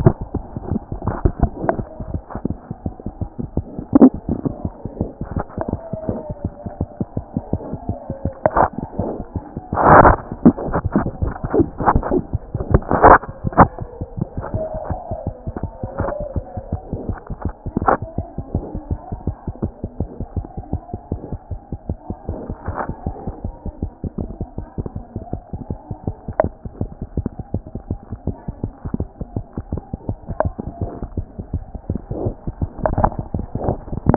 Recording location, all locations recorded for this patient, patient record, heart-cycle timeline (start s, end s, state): mitral valve (MV)
aortic valve (AV)+mitral valve (MV)
#Age: Infant
#Sex: Female
#Height: nan
#Weight: 3.6 kg
#Pregnancy status: False
#Murmur: Absent
#Murmur locations: nan
#Most audible location: nan
#Systolic murmur timing: nan
#Systolic murmur shape: nan
#Systolic murmur grading: nan
#Systolic murmur pitch: nan
#Systolic murmur quality: nan
#Diastolic murmur timing: nan
#Diastolic murmur shape: nan
#Diastolic murmur grading: nan
#Diastolic murmur pitch: nan
#Diastolic murmur quality: nan
#Outcome: Abnormal
#Campaign: 2014 screening campaign
0.00	18.44	unannotated
18.44	18.54	diastole
18.54	18.60	S1
18.60	18.74	systole
18.74	18.80	S2
18.80	18.90	diastole
18.90	18.96	S1
18.96	19.12	systole
19.12	19.16	S2
19.16	19.27	diastole
19.27	19.34	S1
19.34	19.48	systole
19.48	19.54	S2
19.54	19.63	diastole
19.63	19.70	S1
19.70	19.83	systole
19.83	19.88	S2
19.88	20.00	diastole
20.00	20.06	S1
20.06	20.19	systole
20.19	20.26	S2
20.26	20.36	diastole
20.36	20.43	S1
20.43	20.56	systole
20.56	20.63	S2
20.63	20.72	diastole
20.72	20.78	S1
20.78	20.93	systole
20.93	20.98	S2
20.98	21.10	diastole
21.10	34.16	unannotated